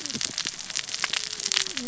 {"label": "biophony, cascading saw", "recorder": "SoundTrap 600 or HydroMoth"}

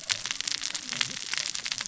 {"label": "biophony, cascading saw", "recorder": "SoundTrap 600 or HydroMoth"}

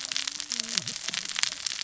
{"label": "biophony, cascading saw", "recorder": "SoundTrap 600 or HydroMoth"}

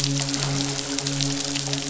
{"label": "biophony, midshipman", "recorder": "SoundTrap 500"}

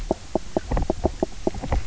{"label": "biophony, knock croak", "recorder": "SoundTrap 300"}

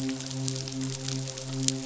{"label": "biophony, midshipman", "recorder": "SoundTrap 500"}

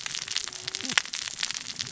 {"label": "biophony, cascading saw", "recorder": "SoundTrap 600 or HydroMoth"}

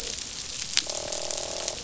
{"label": "biophony, croak", "recorder": "SoundTrap 500"}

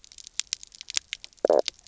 {"label": "biophony, knock croak", "recorder": "SoundTrap 300"}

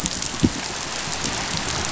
{"label": "biophony, chatter", "recorder": "SoundTrap 500"}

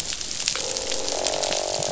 {"label": "biophony, croak", "recorder": "SoundTrap 500"}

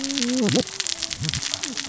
{"label": "biophony, cascading saw", "recorder": "SoundTrap 600 or HydroMoth"}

